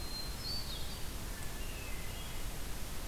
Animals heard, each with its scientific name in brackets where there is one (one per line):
Hermit Thrush (Catharus guttatus)